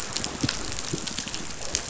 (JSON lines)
{"label": "biophony", "recorder": "SoundTrap 500"}